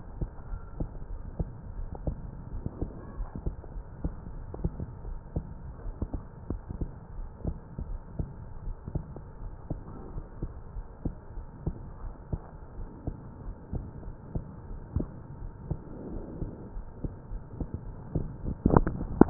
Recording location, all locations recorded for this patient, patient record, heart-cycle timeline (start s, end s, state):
aortic valve (AV)
aortic valve (AV)+pulmonary valve (PV)+tricuspid valve (TV)+mitral valve (MV)
#Age: Child
#Sex: Female
#Height: 120.0 cm
#Weight: 23.9 kg
#Pregnancy status: False
#Murmur: Absent
#Murmur locations: nan
#Most audible location: nan
#Systolic murmur timing: nan
#Systolic murmur shape: nan
#Systolic murmur grading: nan
#Systolic murmur pitch: nan
#Systolic murmur quality: nan
#Diastolic murmur timing: nan
#Diastolic murmur shape: nan
#Diastolic murmur grading: nan
#Diastolic murmur pitch: nan
#Diastolic murmur quality: nan
#Outcome: Normal
#Campaign: 2015 screening campaign
0.00	0.16	systole
0.16	0.30	S2
0.30	0.50	diastole
0.50	0.62	S1
0.62	0.76	systole
0.76	0.88	S2
0.88	1.10	diastole
1.10	1.24	S1
1.24	1.38	systole
1.38	1.52	S2
1.52	1.76	diastole
1.76	1.90	S1
1.90	2.04	systole
2.04	2.20	S2
2.20	2.46	diastole
2.46	2.62	S1
2.62	2.78	systole
2.78	2.92	S2
2.92	3.14	diastole
3.14	3.28	S1
3.28	3.42	systole
3.42	3.54	S2
3.54	3.72	diastole
3.72	3.84	S1
3.84	3.98	systole
3.98	4.14	S2
4.14	4.36	diastole
4.36	4.50	S1
4.50	4.64	systole
4.64	4.80	S2
4.80	5.04	diastole
5.04	5.20	S1
5.20	5.31	systole
5.31	5.44	S2
5.44	5.82	diastole
5.82	5.96	S1
5.96	6.12	systole
6.12	6.26	S2
6.26	6.48	diastole
6.48	6.62	S1
6.62	6.74	systole
6.74	6.90	S2
6.90	7.14	diastole
7.14	7.28	S1
7.28	7.42	systole
7.42	7.56	S2
7.56	7.80	diastole
7.80	7.98	S1
7.98	8.16	systole
8.16	8.28	S2
8.28	8.64	diastole
8.64	8.78	S1
8.78	8.93	systole
8.93	9.05	S2
9.05	9.42	diastole
9.42	9.54	S1
9.54	9.66	systole
9.66	9.78	S2
9.78	10.12	diastole
10.12	10.24	S1
10.24	10.38	systole
10.38	10.51	S2
10.51	10.72	diastole
10.72	10.85	S1
10.85	11.02	systole
11.02	11.14	S2
11.14	11.31	diastole
11.31	11.50	S1
11.50	11.61	systole
11.61	11.77	S2
11.77	12.00	diastole
12.00	12.13	S1
12.13	12.29	systole
12.29	12.41	S2
12.41	12.78	diastole
12.78	12.88	S1
12.88	13.06	systole
13.06	13.20	S2
13.20	13.44	diastole
13.44	13.56	S1
13.56	13.74	systole
13.74	13.88	S2
13.88	14.08	diastole
14.08	14.16	S1
14.16	14.34	systole
14.34	14.48	S2
14.48	14.68	diastole
14.68	14.78	S1
14.78	14.94	systole
14.94	15.10	S2
15.10	15.36	diastole
15.36	15.52	S1
15.52	15.66	systole
15.66	15.80	S2
15.80	16.06	diastole
16.06	16.22	S1
16.22	16.40	systole
16.40	16.54	S2
16.54	16.76	diastole
16.76	16.86	S1
16.86	17.00	systole
17.00	17.12	S2
17.12	17.32	diastole
17.32	17.44	S1
17.44	17.68	systole
17.68	17.84	S2
17.84	18.10	diastole